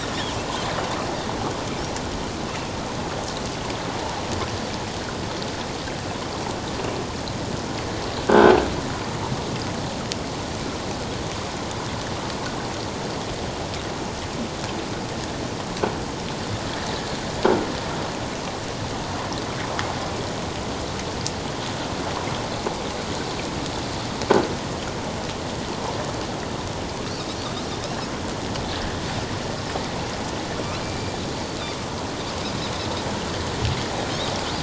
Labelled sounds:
8.2	8.5	croaking sound likely from a nearby submerged object, 1.4 to 1.6 kHz
30.8	31.2	Pacific white-sided dolphin, 2.3 to 2.5 kHz

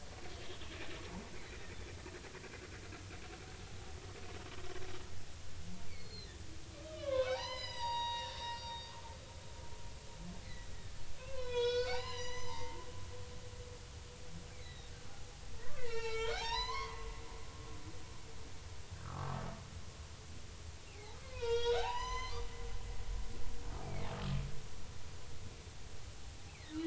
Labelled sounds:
0.3	0.7	humpback whale, 3.1 to 3.5 kHz
1.5	1.8	humpback whale, 1.8 to 2.1 kHz
6.8	8.9	humpback whale, 0.80 to 6.0 kHz
10.4	12.8	humpback whale, 0.80 to 7.1 kHz
14.5	14.9	humpback whale, 1.9 to 4.1 kHz
15.8	17.1	humpback whale, 0.80 to 6.2 kHz
19.0	19.4	humpback whale, 1.1 to 1.4 kHz
20.9	22.5	humpback whale, 0.80 to 7.2 kHz
22.9	24.1	humpback whale, 2.0 to 5.2 kHz
26.5	26.8	humpback whale, 1.8 to 2.8 kHz

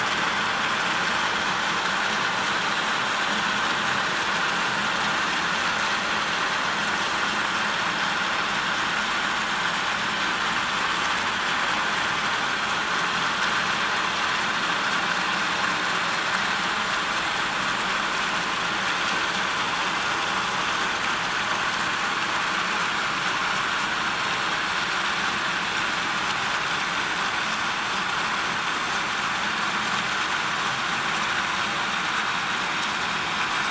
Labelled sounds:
10.5	10.8	vessel noise, 7.1 to 7.4 kHz

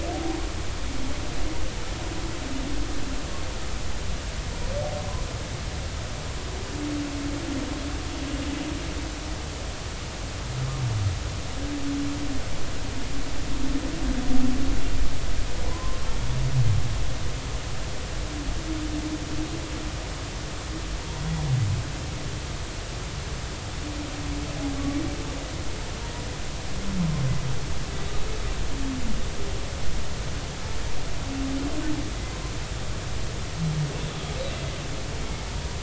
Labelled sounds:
15.7	16.1	humpback whale, 0.93 to 1.2 kHz

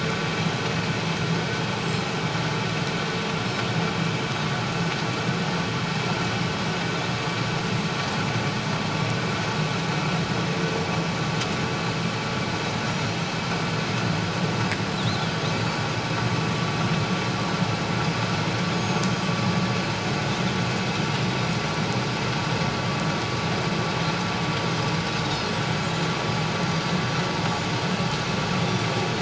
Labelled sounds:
14.9	15.2	Pacific white-sided dolphin, 3.3 to 4.2 kHz
15.5	15.8	Pacific white-sided dolphin, 4.5 to 4.7 kHz
18.7	19.1	Pacific white-sided dolphin, 6.4 to 6.7 kHz
28.6	28.9	Pacific white-sided dolphin, 3.4 to 3.5 kHz

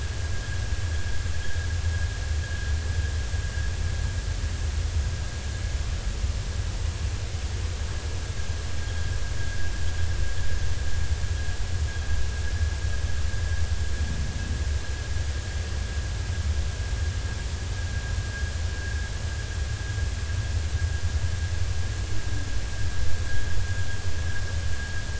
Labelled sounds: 8.9	9.7	vessel noise, 1.5 to 1.8 kHz

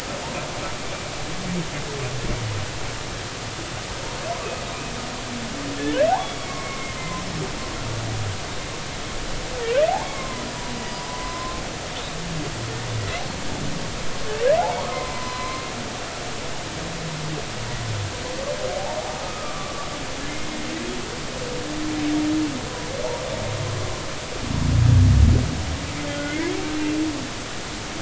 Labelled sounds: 6.1	7.2	humpback whale, 0.80 to 2.2 kHz
9.9	11.6	humpback whale, 0.80 to 5.0 kHz
14.9	15.7	humpback whale, 0.93 to 4.2 kHz
19.2	19.9	humpback whale, 1.1 to 1.3 kHz
26.1	26.5	humpback whale, 1.3 to 2.3 kHz

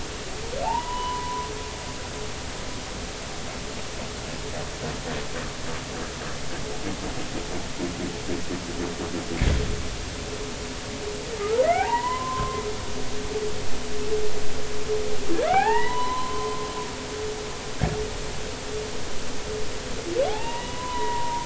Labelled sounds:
0.6	1.5	humpback whale, 0.80 to 3.0 kHz
11.4	12.6	humpback whale, 0.80 to 2.1 kHz
15.4	16.7	humpback whale, 0.80 to 4.1 kHz
20.3	21.4	humpback whale, 0.80 to 2.0 kHz

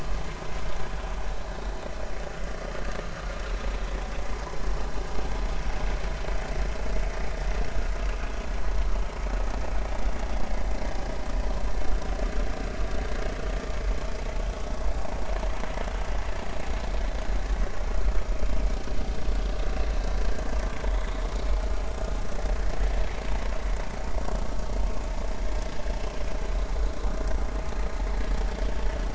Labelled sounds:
20.9	21.6	vessel noise, 2.3 to 3.6 kHz

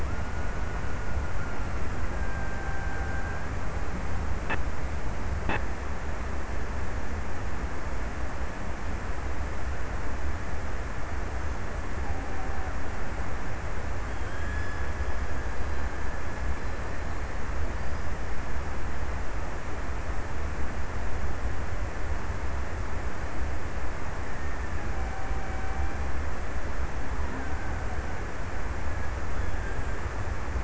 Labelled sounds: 0.0	4.0	killer whale, Bigg's (transient), 0.55 to 1.9 kHz
13.1	17.5	killer whale, Bigg's (transient), 1.4 to 5.6 kHz
24.1	26.5	killer whale, Bigg's (transient), 0.62 to 2.7 kHz

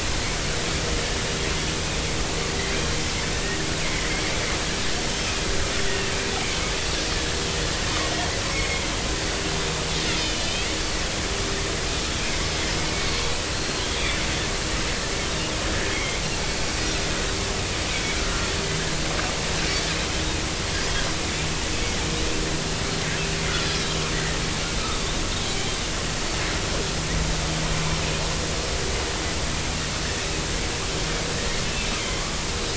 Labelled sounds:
3.3	4.1	Pacific white-sided dolphin, 1.6 to 2.3 kHz
8.5	8.8	Pacific white-sided dolphin, 2.1 to 2.2 kHz
10.1	10.7	Pacific white-sided dolphin, 2.4 to 5.0 kHz
13.5	14.2	Pacific white-sided dolphin, 3.1 to 4.3 kHz
15.9	16.2	Pacific white-sided dolphin, 2.0 to 2.3 kHz
18.1	18.5	Pacific white-sided dolphin, 1.3 to 1.5 kHz
24.1	24.4	Pacific white-sided dolphin, 1.8 to 2.0 kHz
26.2	26.4	Pacific white-sided dolphin, 4.4 to 4.5 kHz

